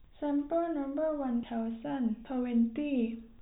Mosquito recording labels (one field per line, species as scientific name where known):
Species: no mosquito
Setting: cup